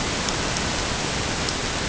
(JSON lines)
{"label": "ambient", "recorder": "HydroMoth"}